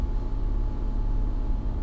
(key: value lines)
label: anthrophony, boat engine
recorder: SoundTrap 300